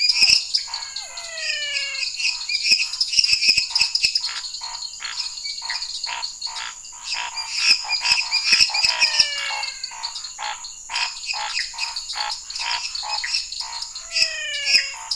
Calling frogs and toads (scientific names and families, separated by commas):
Leptodactylus elenae (Leptodactylidae), Physalaemus cuvieri (Leptodactylidae), Dendropsophus minutus (Hylidae), Dendropsophus nanus (Hylidae), Scinax fuscovarius (Hylidae), Physalaemus albonotatus (Leptodactylidae), Pithecopus azureus (Hylidae)